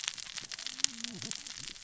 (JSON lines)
{"label": "biophony, cascading saw", "recorder": "SoundTrap 600 or HydroMoth"}